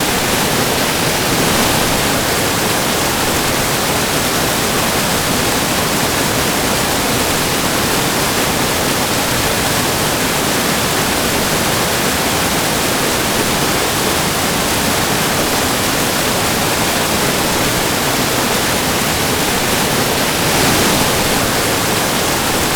Is there static?
yes